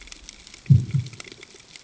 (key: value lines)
label: anthrophony, bomb
recorder: HydroMoth